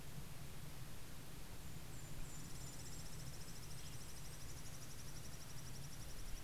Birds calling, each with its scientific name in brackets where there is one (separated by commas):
Golden-crowned Kinglet (Regulus satrapa), Western Tanager (Piranga ludoviciana)